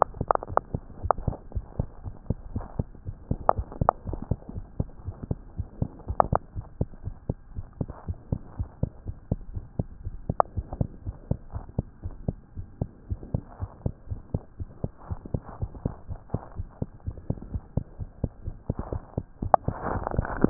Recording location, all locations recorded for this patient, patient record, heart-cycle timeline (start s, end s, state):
tricuspid valve (TV)
aortic valve (AV)+pulmonary valve (PV)+tricuspid valve (TV)+mitral valve (MV)
#Age: Child
#Sex: Female
#Height: 92.0 cm
#Weight: 14.0 kg
#Pregnancy status: False
#Murmur: Absent
#Murmur locations: nan
#Most audible location: nan
#Systolic murmur timing: nan
#Systolic murmur shape: nan
#Systolic murmur grading: nan
#Systolic murmur pitch: nan
#Systolic murmur quality: nan
#Diastolic murmur timing: nan
#Diastolic murmur shape: nan
#Diastolic murmur grading: nan
#Diastolic murmur pitch: nan
#Diastolic murmur quality: nan
#Outcome: Abnormal
#Campaign: 2015 screening campaign
0.00	4.38	unannotated
4.38	4.54	diastole
4.54	4.66	S1
4.66	4.76	systole
4.76	4.90	S2
4.90	5.06	diastole
5.06	5.16	S1
5.16	5.28	systole
5.28	5.42	S2
5.42	5.56	diastole
5.56	5.68	S1
5.68	5.80	systole
5.80	5.92	S2
5.92	6.08	diastole
6.08	6.18	S1
6.18	6.30	systole
6.30	6.40	S2
6.40	6.56	diastole
6.56	6.66	S1
6.66	6.76	systole
6.76	6.88	S2
6.88	7.04	diastole
7.04	7.14	S1
7.14	7.28	systole
7.28	7.38	S2
7.38	7.54	diastole
7.54	7.66	S1
7.66	7.76	systole
7.76	7.88	S2
7.88	8.06	diastole
8.06	8.18	S1
8.18	8.28	systole
8.28	8.40	S2
8.40	8.54	diastole
8.54	8.70	S1
8.70	8.78	systole
8.78	8.92	S2
8.92	9.06	diastole
9.06	9.16	S1
9.16	9.30	systole
9.30	9.40	S2
9.40	9.52	diastole
9.52	9.66	S1
9.66	9.78	systole
9.78	9.90	S2
9.90	10.04	diastole
10.04	10.20	S1
10.20	10.28	systole
10.28	10.36	S2
10.36	10.52	diastole
10.52	10.66	S1
10.66	10.78	systole
10.78	10.92	S2
10.92	11.06	diastole
11.06	11.16	S1
11.16	11.26	systole
11.26	11.38	S2
11.38	11.54	diastole
11.54	11.64	S1
11.64	11.74	systole
11.74	11.86	S2
11.86	12.04	diastole
12.04	12.18	S1
12.18	12.26	systole
12.26	12.38	S2
12.38	12.56	diastole
12.56	12.66	S1
12.66	12.80	systole
12.80	12.90	S2
12.90	13.06	diastole
13.06	13.20	S1
13.20	13.32	systole
13.32	13.44	S2
13.44	13.60	diastole
13.60	13.70	S1
13.70	13.82	systole
13.82	13.96	S2
13.96	14.10	diastole
14.10	14.22	S1
14.22	14.30	systole
14.30	14.42	S2
14.42	14.60	diastole
14.60	14.68	S1
14.68	14.80	systole
14.80	14.90	S2
14.90	15.08	diastole
15.08	15.20	S1
15.20	15.30	systole
15.30	15.42	S2
15.42	15.58	diastole
15.58	15.72	S1
15.72	15.84	systole
15.84	15.96	S2
15.96	16.10	diastole
16.10	16.20	S1
16.20	16.30	systole
16.30	16.44	S2
16.44	16.58	diastole
16.58	16.70	S1
16.70	16.82	systole
16.82	16.92	S2
16.92	17.06	diastole
17.06	17.16	S1
17.16	17.26	systole
17.26	17.38	S2
17.38	17.50	diastole
17.50	17.64	S1
17.64	17.72	systole
17.72	17.84	S2
17.84	18.00	diastole
18.00	18.10	S1
18.10	18.22	systole
18.22	18.32	S2
18.32	18.44	diastole
18.44	18.56	S1
18.56	18.66	systole
18.66	18.78	S2
18.78	18.88	diastole
18.88	20.50	unannotated